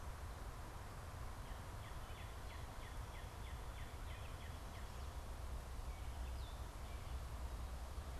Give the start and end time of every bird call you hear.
1.2s-5.0s: Northern Cardinal (Cardinalis cardinalis)

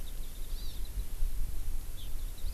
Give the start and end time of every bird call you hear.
0.1s-1.1s: Warbling White-eye (Zosterops japonicus)
0.5s-0.8s: Hawaii Amakihi (Chlorodrepanis virens)

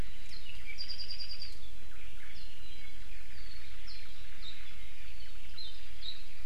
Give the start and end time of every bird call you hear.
0.0s-0.3s: Iiwi (Drepanis coccinea)
0.3s-1.7s: Apapane (Himatione sanguinea)
1.7s-2.0s: Iiwi (Drepanis coccinea)
1.9s-2.3s: Omao (Myadestes obscurus)
2.3s-2.5s: Apapane (Himatione sanguinea)
2.6s-3.0s: Iiwi (Drepanis coccinea)
3.0s-5.6s: Omao (Myadestes obscurus)
3.3s-3.6s: Apapane (Himatione sanguinea)
3.9s-4.1s: Apapane (Himatione sanguinea)
4.4s-4.5s: Apapane (Himatione sanguinea)
5.6s-5.7s: Apapane (Himatione sanguinea)
6.0s-6.2s: Apapane (Himatione sanguinea)

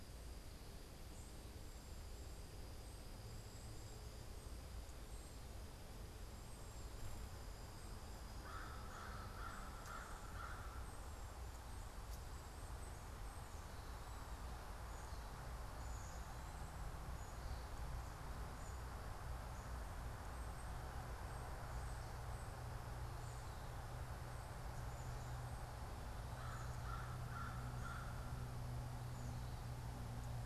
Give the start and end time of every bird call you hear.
2.5s-14.2s: unidentified bird
8.3s-11.1s: American Crow (Corvus brachyrhynchos)
14.5s-19.1s: Black-capped Chickadee (Poecile atricapillus)
26.3s-28.2s: American Crow (Corvus brachyrhynchos)

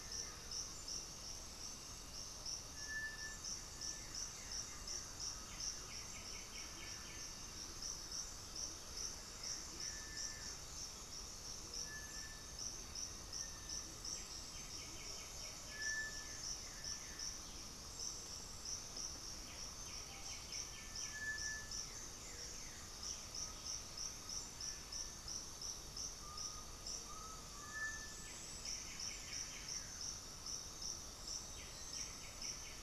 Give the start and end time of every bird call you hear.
0.0s-23.2s: Blue-gray Saltator (Saltator coerulescens)
0.0s-32.8s: Cinereous Tinamou (Crypturellus cinereus)
4.9s-16.6s: Horned Screamer (Anhima cornuta)
5.3s-7.5s: White-winged Becard (Pachyramphus polychopterus)
13.7s-15.9s: White-winged Becard (Pachyramphus polychopterus)
19.4s-21.6s: White-winged Becard (Pachyramphus polychopterus)
22.9s-24.1s: unidentified bird
26.0s-28.1s: Undulated Tinamou (Crypturellus undulatus)
27.9s-32.8s: White-winged Becard (Pachyramphus polychopterus)
28.5s-30.0s: Blue-gray Saltator (Saltator coerulescens)

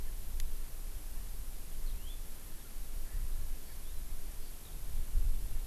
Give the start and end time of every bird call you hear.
1.8s-2.2s: Yellow-fronted Canary (Crithagra mozambica)

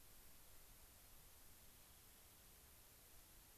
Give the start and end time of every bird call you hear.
1.6s-2.4s: Rock Wren (Salpinctes obsoletus)

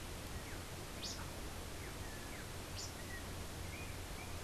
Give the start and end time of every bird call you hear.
0.0s-4.4s: unidentified bird
2.8s-4.4s: Yellow-backed Oriole (Icterus chrysater)

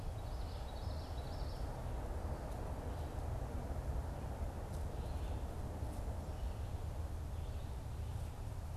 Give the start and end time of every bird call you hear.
0.0s-1.9s: Common Yellowthroat (Geothlypis trichas)

